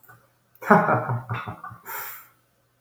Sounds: Laughter